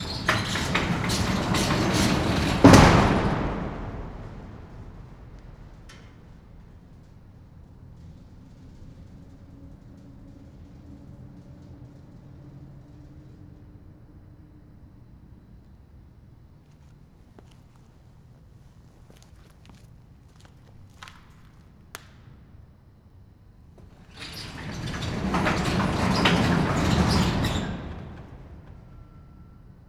Is there any slamming?
yes